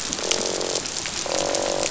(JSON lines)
{"label": "biophony, croak", "recorder": "SoundTrap 500"}